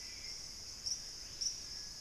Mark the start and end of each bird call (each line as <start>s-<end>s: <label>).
0.0s-2.0s: Hauxwell's Thrush (Turdus hauxwelli)
0.0s-2.0s: Screaming Piha (Lipaugus vociferans)
1.4s-2.0s: Gray Antbird (Cercomacra cinerascens)